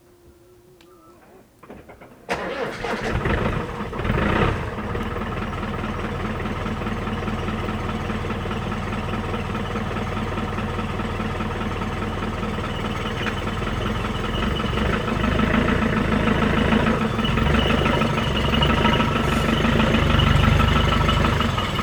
Did the car start driving?
yes